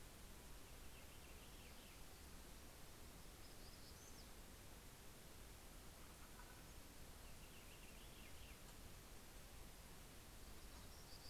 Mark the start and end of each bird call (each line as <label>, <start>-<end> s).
Purple Finch (Haemorhous purpureus), 0.0-2.7 s
Black-throated Gray Warbler (Setophaga nigrescens), 2.7-4.8 s
Purple Finch (Haemorhous purpureus), 6.8-9.0 s